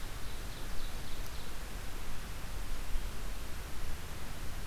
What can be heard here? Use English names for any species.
Ovenbird